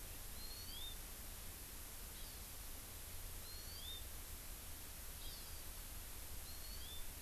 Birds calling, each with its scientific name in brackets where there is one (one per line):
Hawaii Amakihi (Chlorodrepanis virens)